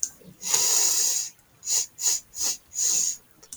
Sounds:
Sniff